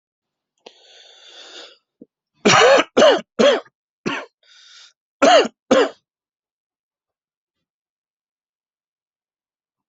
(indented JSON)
{
  "expert_labels": [
    {
      "quality": "good",
      "cough_type": "dry",
      "dyspnea": false,
      "wheezing": true,
      "stridor": false,
      "choking": false,
      "congestion": false,
      "nothing": true,
      "diagnosis": "obstructive lung disease",
      "severity": "mild"
    }
  ]
}